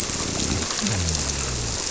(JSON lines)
{"label": "biophony", "recorder": "SoundTrap 300"}